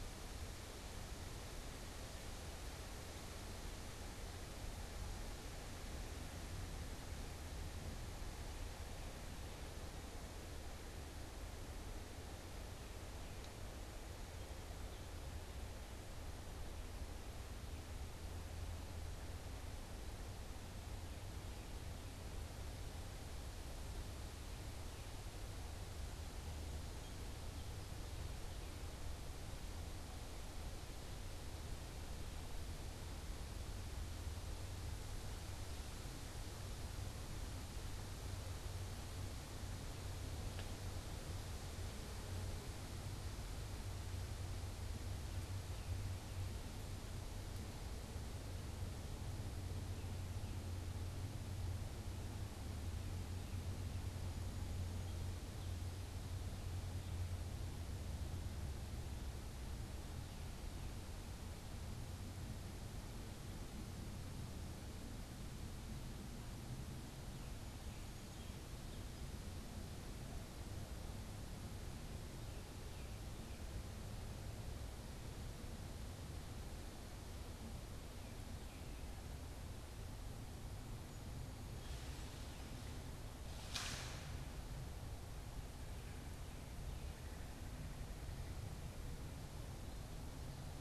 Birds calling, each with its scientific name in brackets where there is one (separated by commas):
unidentified bird, Tufted Titmouse (Baeolophus bicolor), Song Sparrow (Melospiza melodia)